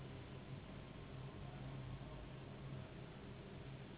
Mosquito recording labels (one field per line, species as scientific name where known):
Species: Anopheles gambiae s.s.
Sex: female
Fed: unfed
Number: one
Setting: insect culture